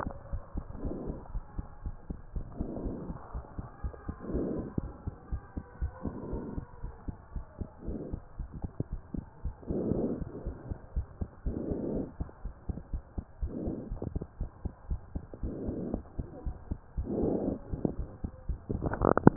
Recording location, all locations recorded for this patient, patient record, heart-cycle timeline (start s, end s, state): pulmonary valve (PV)
aortic valve (AV)+pulmonary valve (PV)+tricuspid valve (TV)+mitral valve (MV)
#Age: Child
#Sex: Male
#Height: 131.0 cm
#Weight: 32.0 kg
#Pregnancy status: False
#Murmur: Absent
#Murmur locations: nan
#Most audible location: nan
#Systolic murmur timing: nan
#Systolic murmur shape: nan
#Systolic murmur grading: nan
#Systolic murmur pitch: nan
#Systolic murmur quality: nan
#Diastolic murmur timing: nan
#Diastolic murmur shape: nan
#Diastolic murmur grading: nan
#Diastolic murmur pitch: nan
#Diastolic murmur quality: nan
#Outcome: Normal
#Campaign: 2015 screening campaign
0.00	1.42	unannotated
1.42	1.55	systole
1.55	1.64	S2
1.64	1.83	diastole
1.83	1.96	S1
1.96	2.07	systole
2.07	2.18	S2
2.18	2.34	diastole
2.34	2.46	S1
2.46	2.58	systole
2.58	2.70	S2
2.70	2.84	diastole
2.84	2.95	S1
2.95	3.08	systole
3.08	3.16	S2
3.16	3.33	diastole
3.33	3.44	S1
3.44	3.57	systole
3.57	3.68	S2
3.68	3.82	diastole
3.82	3.94	S1
3.94	4.06	systole
4.06	4.16	S2
4.16	4.31	diastole
4.31	4.43	S1
4.43	4.54	systole
4.54	4.63	S2
4.63	4.80	diastole
4.80	4.90	S1
4.90	5.04	systole
5.04	5.14	S2
5.14	5.29	diastole
5.29	5.42	S1
5.42	5.55	systole
5.55	5.64	S2
5.64	5.78	diastole
5.78	5.91	S1
5.91	6.04	systole
6.04	6.14	S2
6.14	6.31	diastole
6.31	6.44	S1
6.44	6.55	systole
6.55	6.64	S2
6.64	6.82	diastole
6.82	6.92	S1
6.92	7.05	systole
7.05	7.16	S2
7.16	7.33	diastole
7.33	7.44	S1
7.44	7.57	systole
7.57	7.70	S2
7.70	7.86	diastole
7.86	7.98	S1
7.98	8.10	systole
8.10	8.20	S2
8.20	8.37	diastole
8.37	8.50	S1
8.50	8.62	systole
8.62	8.70	S2
8.70	8.90	diastole
8.90	9.03	S1
9.03	9.14	systole
9.14	9.26	S2
9.26	9.42	diastole
9.42	9.54	S1
9.54	9.68	systole
9.68	19.36	unannotated